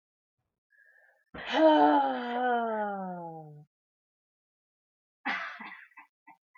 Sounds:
Sigh